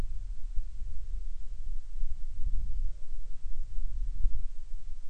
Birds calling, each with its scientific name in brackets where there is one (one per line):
Hawaiian Petrel (Pterodroma sandwichensis)